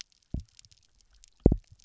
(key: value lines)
label: biophony, double pulse
recorder: SoundTrap 300